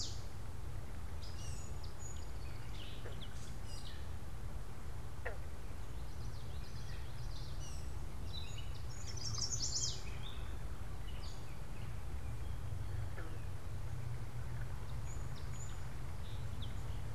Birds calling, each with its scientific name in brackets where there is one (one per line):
Chestnut-sided Warbler (Setophaga pensylvanica)
Common Yellowthroat (Geothlypis trichas)
Song Sparrow (Melospiza melodia)
Gray Catbird (Dumetella carolinensis)